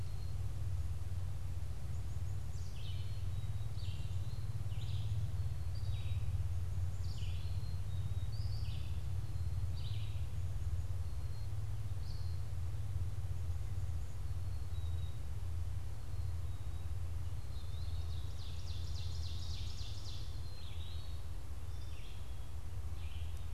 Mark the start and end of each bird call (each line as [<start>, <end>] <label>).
[0.00, 8.52] Black-capped Chickadee (Poecile atricapillus)
[0.00, 12.72] Red-eyed Vireo (Vireo olivaceus)
[14.22, 23.54] Black-capped Chickadee (Poecile atricapillus)
[17.22, 23.54] Red-eyed Vireo (Vireo olivaceus)
[17.32, 23.54] Eastern Wood-Pewee (Contopus virens)
[17.72, 20.62] Ovenbird (Seiurus aurocapilla)